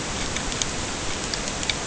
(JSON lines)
{"label": "ambient", "recorder": "HydroMoth"}